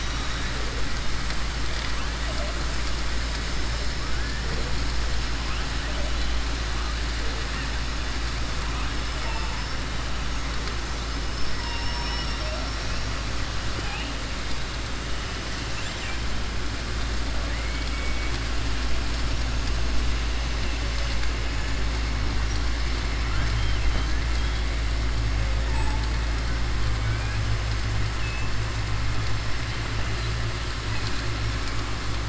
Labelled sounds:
11.3	12.5	killer whale, southern resident, 4.8 to 5.6 kHz
15.6	16.2	killer whale, southern resident, 1.6 to 3.9 kHz
23.2	24.1	killer whale, southern resident, 0.63 to 3.9 kHz
28.1	28.5	killer whale, southern resident, 2.6 to 3.6 kHz

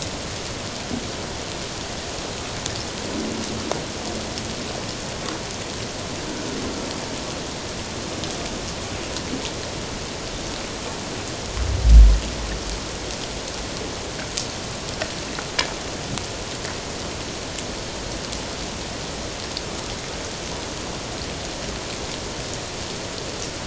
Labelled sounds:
6.3	6.6	killer whale, 1.4 to 1.6 kHz

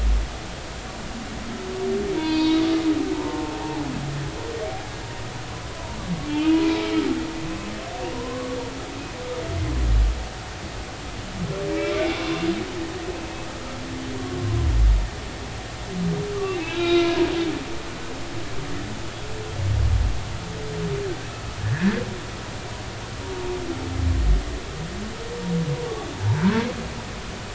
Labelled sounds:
2.1	2.6	humpback whale, 0.90 to 4.8 kHz
3.1	3.5	humpback whale, 0.83 to 1.1 kHz
6.3	7.0	humpback whale, 2.2 to 2.9 kHz
8.1	8.6	humpback whale, 0.93 to 1.2 kHz
11.7	12.3	humpback whale, 2.1 to 2.4 kHz
16.6	17.1	humpback whale, 1.3 to 3.9 kHz
21.6	22.0	humpback whale, 1.5 to 2.0 kHz

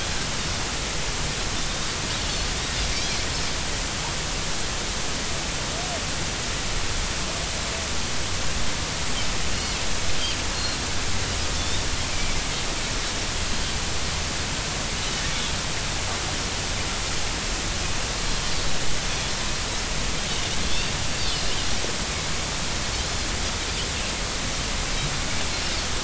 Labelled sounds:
10.5	11.8	Pacific white-sided dolphin, 3.4 to 4.4 kHz
12.1	12.4	Pacific white-sided dolphin, 2.2 to 2.4 kHz

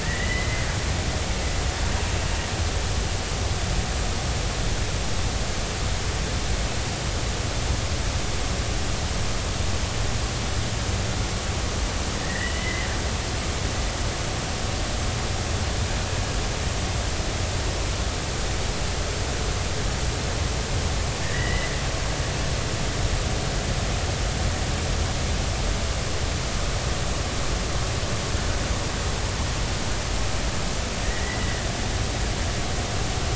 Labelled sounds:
0.0	0.7	killer whale, Bigg's (transient), 1.7 to 2.1 kHz
12.2	12.9	killer whale, Bigg's (transient), 1.7 to 2.1 kHz
21.2	21.7	killer whale, Bigg's (transient), 1.6 to 3.0 kHz
31.0	31.6	killer whale, Bigg's (transient), 1.7 to 2.0 kHz

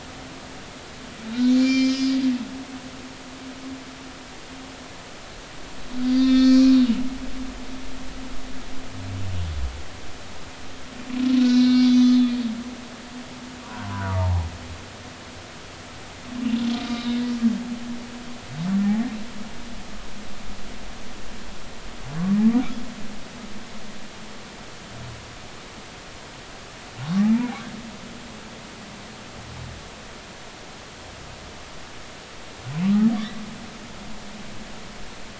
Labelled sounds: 1.3	2.2	humpback whale, 2.0 to 7.0 kHz
6.1	6.8	humpback whale, 1.2 to 5.2 kHz
11.4	12.4	humpback whale, 1.4 to 5.6 kHz
13.6	14.4	humpback whale, 0.80 to 1.6 kHz
27.1	27.4	humpback whale, 0.99 to 1.3 kHz
32.8	33.1	humpback whale, 1.1 to 1.3 kHz

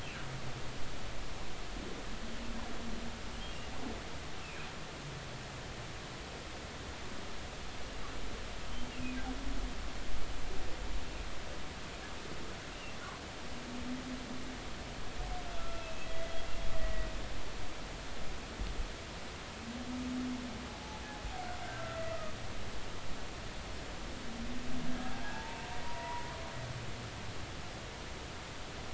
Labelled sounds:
4.4	4.7	humpback whale, 2.4 to 2.7 kHz
8.9	9.2	humpback whale, 2.2 to 2.9 kHz
15.6	16.3	humpback whale, 1.3 to 2.7 kHz
16.7	17.1	humpback whale, 1.9 to 2.0 kHz
20.7	21.0	humpback whale, 0.80 to 0.90 kHz
21.8	22.0	humpback whale, 1.3 to 1.6 kHz
25.3	26.2	humpback whale, 0.83 to 1.0 kHz

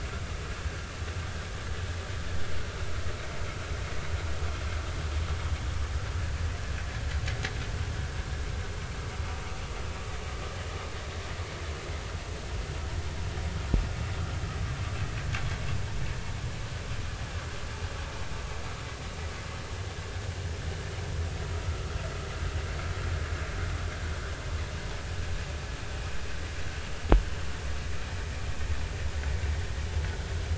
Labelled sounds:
21.6	21.9	vessel noise, 1.1 to 1.4 kHz

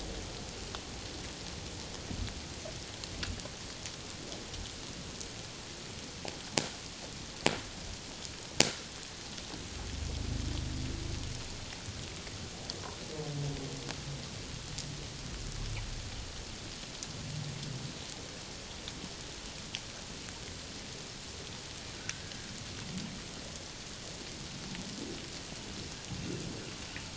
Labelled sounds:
22.2	22.5	humpback whale, 1.6 to 1.8 kHz

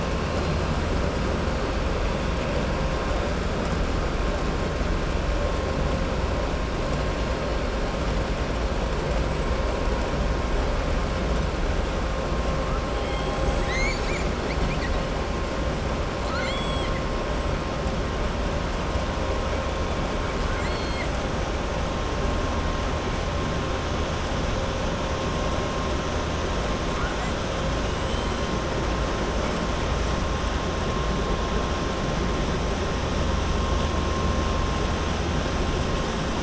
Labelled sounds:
16.2	16.9	killer whale, southern resident, 1.1 to 8.0 kHz
20.4	21.1	killer whale, southern resident, 1.4 to 4.4 kHz

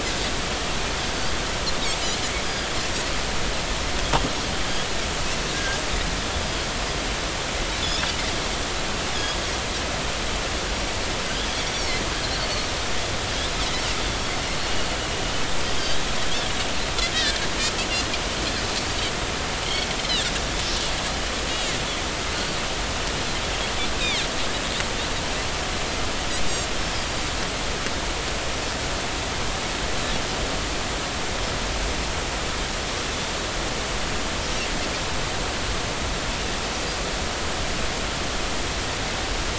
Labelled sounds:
5.5	5.8	Pacific white-sided dolphin, 1.5 to 1.7 kHz
7.8	8.1	Pacific white-sided dolphin, 3.3 to 3.7 kHz
9.1	9.4	Pacific white-sided dolphin, 3.2 to 3.7 kHz
11.7	12.5	Pacific white-sided dolphin, 2.0 to 5.9 kHz
20.0	20.2	Pacific white-sided dolphin, 2.7 to 3.2 kHz
22.3	22.6	Pacific white-sided dolphin, 4.3 to 4.7 kHz
24.0	24.3	Pacific white-sided dolphin, 2.0 to 3.9 kHz

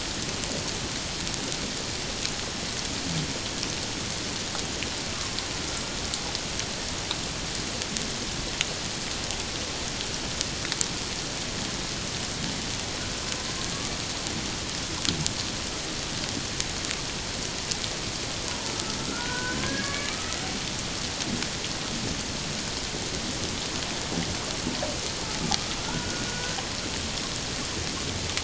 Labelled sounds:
18.7	20.4	humpback whale, 0.91 to 2.4 kHz
25.9	26.6	humpback whale, 1.3 to 1.6 kHz

